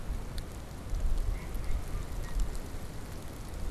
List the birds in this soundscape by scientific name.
Anas platyrhynchos, Branta canadensis